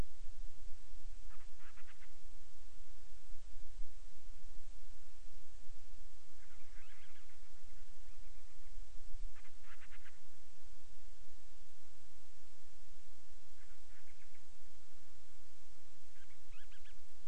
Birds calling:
Band-rumped Storm-Petrel (Hydrobates castro)

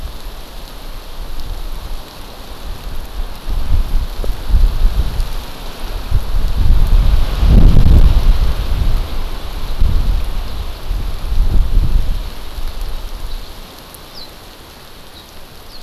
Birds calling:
House Finch (Haemorhous mexicanus)

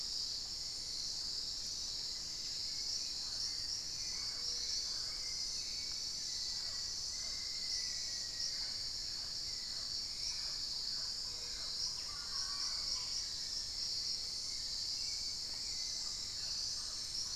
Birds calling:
Hauxwell's Thrush (Turdus hauxwelli), Black-faced Antthrush (Formicarius analis), unidentified bird, Mealy Parrot (Amazona farinosa)

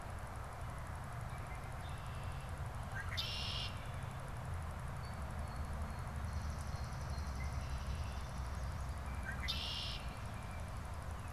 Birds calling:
Swamp Sparrow (Melospiza georgiana), Red-winged Blackbird (Agelaius phoeniceus), Blue Jay (Cyanocitta cristata)

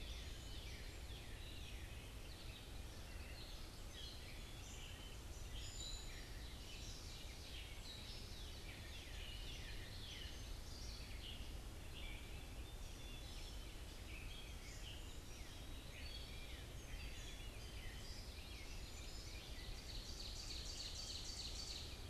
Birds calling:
Gray Catbird (Dumetella carolinensis), Northern Cardinal (Cardinalis cardinalis), Common Yellowthroat (Geothlypis trichas), Ovenbird (Seiurus aurocapilla)

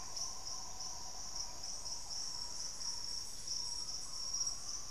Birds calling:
Green Ibis (Mesembrinibis cayennensis)

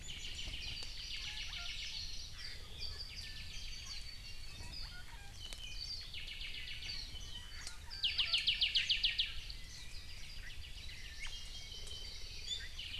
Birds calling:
Apapane (Himatione sanguinea), Omao (Myadestes obscurus), Iiwi (Drepanis coccinea), Warbling White-eye (Zosterops japonicus), Hawaii Amakihi (Chlorodrepanis virens)

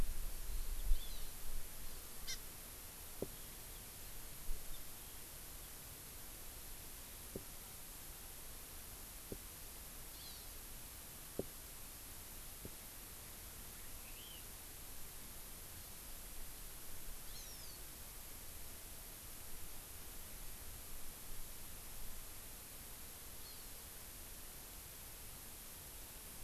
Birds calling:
Eurasian Skylark (Alauda arvensis), Chinese Hwamei (Garrulax canorus), Hawaii Amakihi (Chlorodrepanis virens)

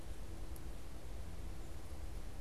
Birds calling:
Yellow-bellied Sapsucker (Sphyrapicus varius)

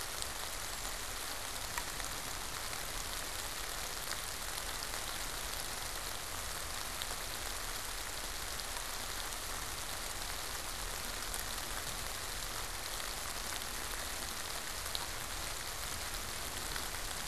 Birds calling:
unidentified bird

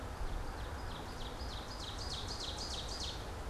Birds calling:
Ovenbird (Seiurus aurocapilla)

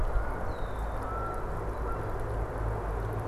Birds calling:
Canada Goose (Branta canadensis), Red-winged Blackbird (Agelaius phoeniceus)

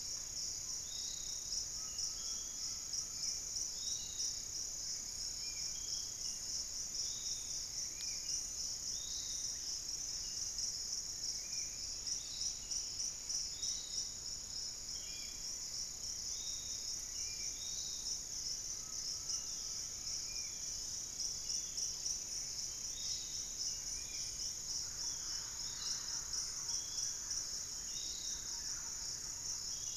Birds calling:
Undulated Tinamou (Crypturellus undulatus), Long-winged Antwren (Myrmotherula longipennis), Thrush-like Wren (Campylorhynchus turdinus), Spot-winged Antshrike (Pygiptila stellaris), Piratic Flycatcher (Legatus leucophaius), Pygmy Antwren (Myrmotherula brachyura)

